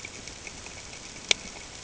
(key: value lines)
label: ambient
recorder: HydroMoth